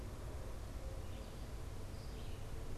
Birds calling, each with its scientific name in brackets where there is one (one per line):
Red-eyed Vireo (Vireo olivaceus)